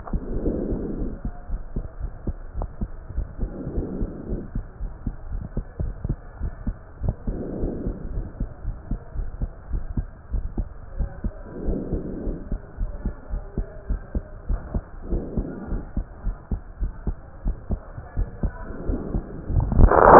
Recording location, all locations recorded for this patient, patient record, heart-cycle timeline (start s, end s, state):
pulmonary valve (PV)
aortic valve (AV)+pulmonary valve (PV)+tricuspid valve (TV)+mitral valve (MV)
#Age: nan
#Sex: Female
#Height: nan
#Weight: nan
#Pregnancy status: True
#Murmur: Absent
#Murmur locations: nan
#Most audible location: nan
#Systolic murmur timing: nan
#Systolic murmur shape: nan
#Systolic murmur grading: nan
#Systolic murmur pitch: nan
#Systolic murmur quality: nan
#Diastolic murmur timing: nan
#Diastolic murmur shape: nan
#Diastolic murmur grading: nan
#Diastolic murmur pitch: nan
#Diastolic murmur quality: nan
#Outcome: Normal
#Campaign: 2015 screening campaign
0.00	1.32	unannotated
1.32	1.52	diastole
1.52	1.64	S1
1.64	1.74	systole
1.74	1.84	S2
1.84	2.02	diastole
2.02	2.10	S1
2.10	2.26	systole
2.26	2.36	S2
2.36	2.56	diastole
2.56	2.70	S1
2.70	2.80	systole
2.80	2.90	S2
2.90	3.14	diastole
3.14	3.28	S1
3.28	3.40	systole
3.40	3.50	S2
3.50	3.74	diastole
3.74	3.88	S1
3.88	3.98	systole
3.98	4.08	S2
4.08	4.28	diastole
4.28	4.38	S1
4.38	4.54	systole
4.54	4.64	S2
4.64	4.82	diastole
4.82	4.92	S1
4.92	5.04	systole
5.04	5.14	S2
5.14	5.32	diastole
5.32	5.44	S1
5.44	5.54	systole
5.54	5.64	S2
5.64	5.82	diastole
5.82	5.94	S1
5.94	6.02	systole
6.02	6.18	S2
6.18	6.42	diastole
6.42	6.54	S1
6.54	6.64	systole
6.64	6.76	S2
6.76	7.02	diastole
7.02	7.16	S1
7.16	7.26	systole
7.26	7.36	S2
7.36	7.60	diastole
7.60	7.74	S1
7.74	7.85	systole
7.85	7.96	S2
7.96	8.14	diastole
8.14	8.26	S1
8.26	8.38	systole
8.38	8.48	S2
8.48	8.66	diastole
8.66	8.76	S1
8.76	8.90	systole
8.90	9.00	S2
9.00	9.18	diastole
9.18	9.30	S1
9.30	9.40	systole
9.40	9.50	S2
9.50	9.72	diastole
9.72	9.84	S1
9.84	9.94	systole
9.94	10.06	S2
10.06	10.32	diastole
10.32	10.46	S1
10.46	10.56	systole
10.56	10.68	S2
10.68	10.94	diastole
10.94	11.12	S1
11.12	11.22	systole
11.22	11.34	S2
11.34	11.62	diastole
11.62	11.76	S1
11.76	11.92	systole
11.92	12.04	S2
12.04	12.26	diastole
12.26	12.36	S1
12.36	12.50	systole
12.50	12.60	S2
12.60	12.80	diastole
12.80	12.90	S1
12.90	13.04	systole
13.04	13.14	S2
13.14	13.32	diastole
13.32	13.44	S1
13.44	13.56	systole
13.56	13.66	S2
13.66	13.88	diastole
13.88	14.02	S1
14.02	14.14	systole
14.14	14.24	S2
14.24	14.48	diastole
14.48	14.62	S1
14.62	14.74	systole
14.74	14.84	S2
14.84	15.10	diastole
15.10	15.24	S1
15.24	15.36	systole
15.36	15.48	S2
15.48	15.70	diastole
15.70	15.84	S1
15.84	15.96	systole
15.96	16.06	S2
16.06	16.26	diastole
16.26	16.36	S1
16.36	16.50	systole
16.50	16.60	S2
16.60	16.80	diastole
16.80	16.92	S1
16.92	17.06	systole
17.06	17.20	S2
17.20	17.44	diastole
17.44	17.58	S1
17.58	17.70	systole
17.70	17.83	S2
17.83	18.16	diastole
18.16	18.30	S1
18.30	18.42	systole
18.42	18.58	S2
18.58	18.84	diastole
18.84	20.19	unannotated